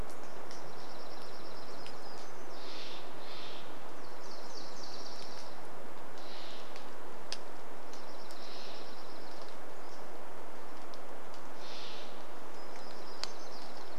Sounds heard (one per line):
Steller's Jay call
rain
Dark-eyed Junco song
warbler song
Pacific-slope Flycatcher call
Nashville Warbler song